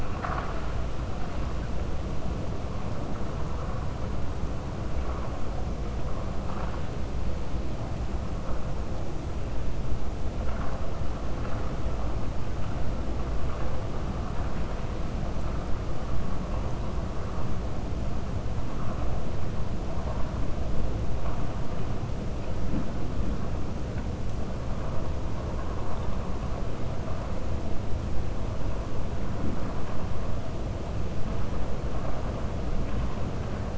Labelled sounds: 0.0	0.7	vessel noise, 0.69 to 4.3 kHz

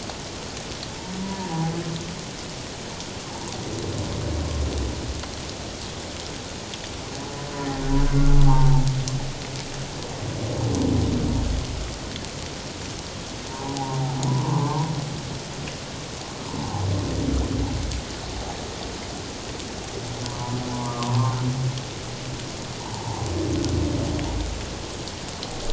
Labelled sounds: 1.2	1.7	humpback whale, 0.88 to 1.0 kHz
8.4	8.8	humpback whale, 0.78 to 1.1 kHz
13.5	14.8	humpback whale, 0.78 to 1.1 kHz
20.2	21.4	humpback whale, 0.81 to 1.2 kHz
22.9	23.2	humpback whale, 0.78 to 1.0 kHz

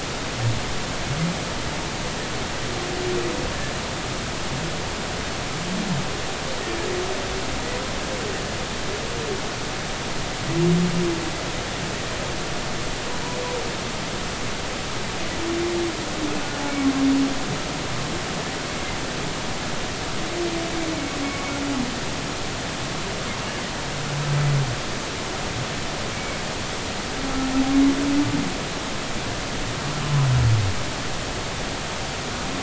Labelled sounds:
21.2	21.6	humpback whale, 1.0 to 2.3 kHz
26.1	26.4	humpback whale, 2.1 to 2.4 kHz

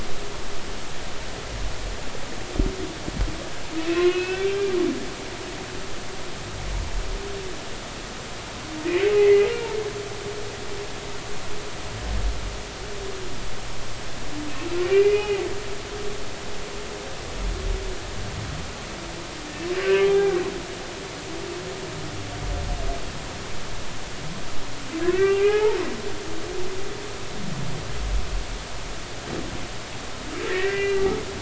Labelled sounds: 3.9	4.7	humpback whale, 0.99 to 2.7 kHz
9.2	9.5	humpback whale, 1.9 to 2.2 kHz
14.8	15.4	humpback whale, 1.9 to 3.0 kHz
19.8	20.3	humpback whale, 0.80 to 2.8 kHz
25.1	25.8	humpback whale, 0.80 to 2.8 kHz
30.5	31.0	humpback whale, 1.7 to 2.8 kHz

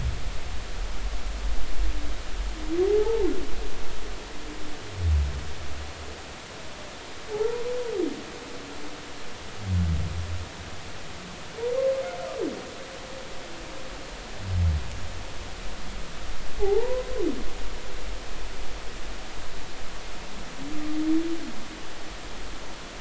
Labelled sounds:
2.8	3.3	humpback whale, 0.80 to 0.96 kHz
7.3	7.6	humpback whale, 0.80 to 1.0 kHz
16.6	17.1	humpback whale, 0.80 to 1.1 kHz

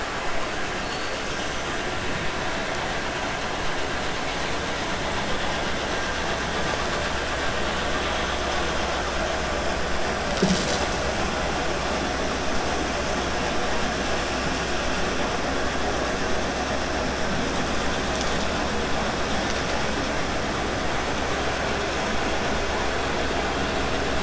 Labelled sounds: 0.8	1.2	killer whale, 3.9 to 5.1 kHz

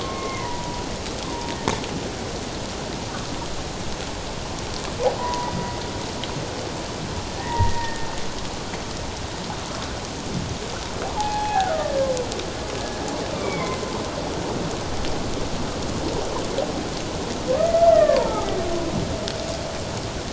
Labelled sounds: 0.0	1.6	humpback whale, 0.88 to 2.2 kHz
5.2	5.5	humpback whale, 0.81 to 1.0 kHz
7.3	8.1	humpback whale, 0.88 to 2.0 kHz
11.2	11.8	humpback whale, 0.78 to 1.8 kHz
13.3	14.0	humpback whale, 0.97 to 2.4 kHz
17.9	18.6	humpback whale, 0.78 to 2.1 kHz

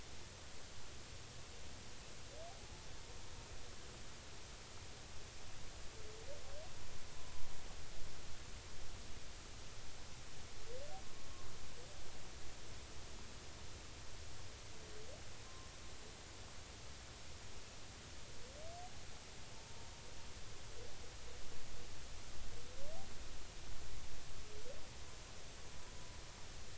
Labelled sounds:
7.1	7.5	humpback whale, 0.93 to 1.1 kHz
15.4	15.7	humpback whale, 0.99 to 1.2 kHz
19.6	19.9	humpback whale, 0.90 to 1.0 kHz

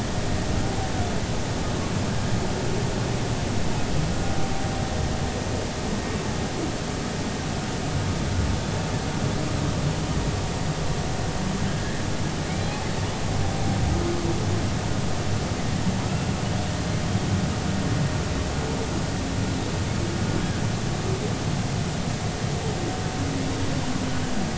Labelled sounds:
11.7	12.0	humpback whale, 1.5 to 1.9 kHz

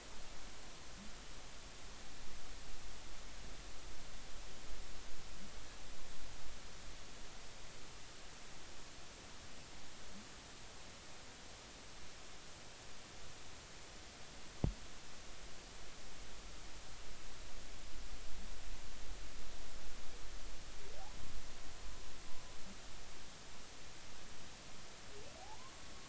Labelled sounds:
25.4	25.7	humpback whale, 0.80 to 1.1 kHz

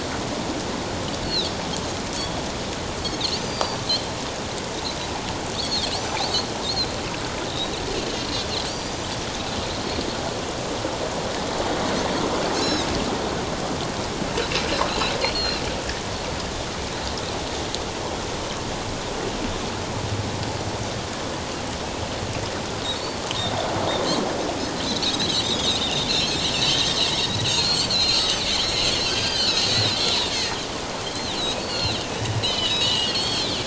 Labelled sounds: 3.2	3.8	Pacific white-sided dolphin, 3.9 to 6.2 kHz
5.5	6.5	Pacific white-sided dolphin, 3.7 to 6.1 kHz
7.5	7.7	Pacific white-sided dolphin, 3.6 to 4.0 kHz
8.7	9.1	Pacific white-sided dolphin, 4.4 to 6.3 kHz
12.5	12.9	Pacific white-sided dolphin, 3.6 to 6.8 kHz
15.2	15.6	Pacific white-sided dolphin, 2.7 to 4.5 kHz
24.8	27.0	Pacific white-sided dolphin, 2.5 to 5.6 kHz
27.5	30.0	Pacific white-sided dolphin, 1.4 to 6.8 kHz
30.3	30.6	Pacific white-sided dolphin, 1.8 to 2.3 kHz
31.6	33.5	Pacific white-sided dolphin, 1.9 to 5.4 kHz

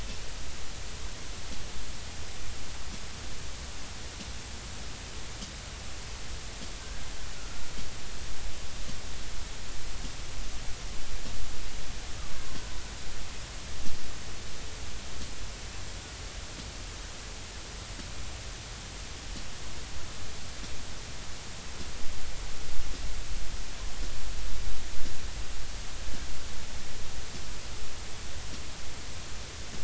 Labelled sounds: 6.8	7.1	killer whale, Bigg's (transient), 1.4 to 1.7 kHz
7.4	7.7	killer whale, Bigg's (transient), 1.3 to 1.5 kHz

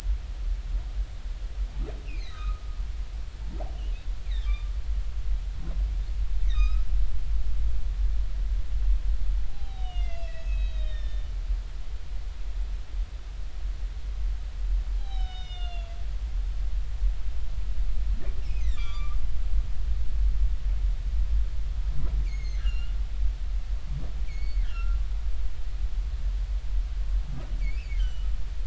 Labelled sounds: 2.0	2.6	humpback whale, 1.1 to 4.3 kHz
4.3	4.7	humpback whale, 1.1 to 4.1 kHz
6.5	6.9	humpback whale, 1.2 to 4.0 kHz
9.5	11.3	humpback whale, 0.80 to 5.7 kHz
14.9	16.0	humpback whale, 0.80 to 6.7 kHz
18.6	19.2	humpback whale, 1.1 to 7.2 kHz
22.2	23.0	humpback whale, 2.0 to 6.6 kHz
24.3	25.0	humpback whale, 1.3 to 6.8 kHz
27.6	28.3	humpback whale, 2.1 to 3.2 kHz

